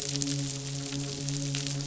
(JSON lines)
{"label": "biophony, midshipman", "recorder": "SoundTrap 500"}